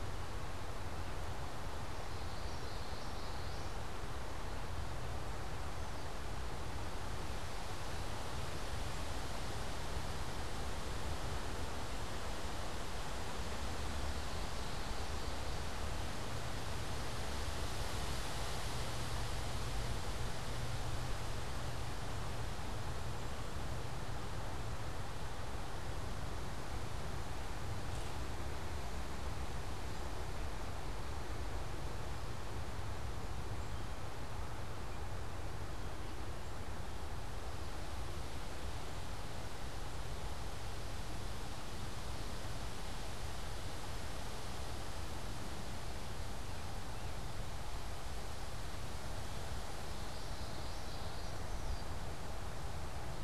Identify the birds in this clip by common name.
Common Yellowthroat, unidentified bird